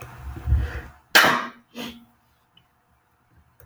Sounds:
Sneeze